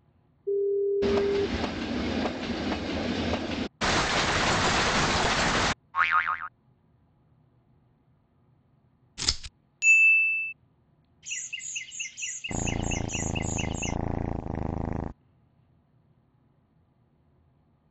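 First, a telephone can be heard, and while that goes on, a train is audible. After that, rain on a surface is heard. Next, there is a boing. Following that, there is the sound of scissors. Afterwards, a loud ding is audible. After that, chirping is heard, and over it, purring can be heard.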